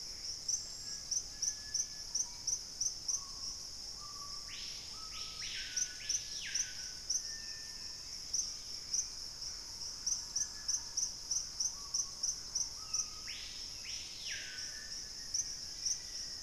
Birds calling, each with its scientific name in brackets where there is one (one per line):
Gray Antbird (Cercomacra cinerascens)
Black-faced Antthrush (Formicarius analis)
Black-capped Becard (Pachyramphus marginatus)
Dusky-capped Greenlet (Pachysylvia hypoxantha)
Thrush-like Wren (Campylorhynchus turdinus)
Screaming Piha (Lipaugus vociferans)
Bright-rumped Attila (Attila spadiceus)